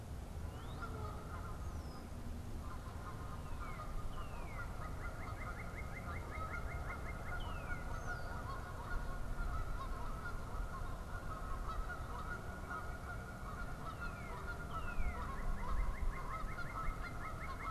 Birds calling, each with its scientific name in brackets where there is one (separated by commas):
Red-winged Blackbird (Agelaius phoeniceus), Canada Goose (Branta canadensis), Northern Cardinal (Cardinalis cardinalis)